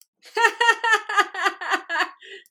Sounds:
Laughter